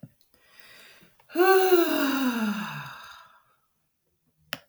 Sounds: Sigh